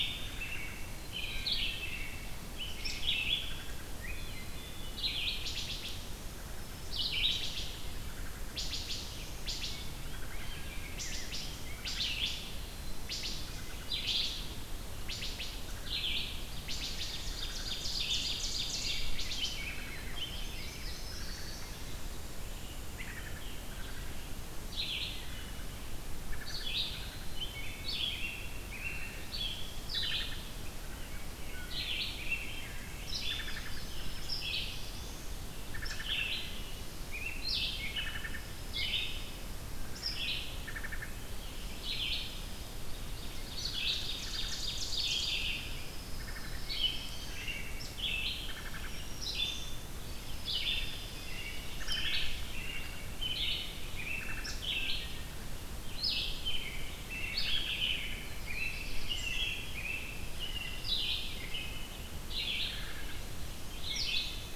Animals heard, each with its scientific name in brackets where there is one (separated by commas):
Pine Warbler (Setophaga pinus), American Robin (Turdus migratorius), Black-throated Blue Warbler (Setophaga caerulescens), Red-eyed Vireo (Vireo olivaceus), Wood Thrush (Hylocichla mustelina), Ovenbird (Seiurus aurocapilla), Black-throated Green Warbler (Setophaga virens), Rose-breasted Grosbeak (Pheucticus ludovicianus), Indigo Bunting (Passerina cyanea)